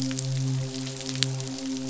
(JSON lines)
{"label": "biophony, midshipman", "recorder": "SoundTrap 500"}